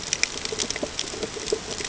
{"label": "ambient", "recorder": "HydroMoth"}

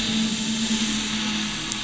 {"label": "anthrophony, boat engine", "recorder": "SoundTrap 500"}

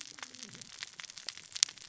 {"label": "biophony, cascading saw", "recorder": "SoundTrap 600 or HydroMoth"}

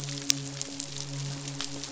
{"label": "biophony, midshipman", "recorder": "SoundTrap 500"}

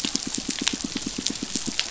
{"label": "biophony, pulse", "recorder": "SoundTrap 500"}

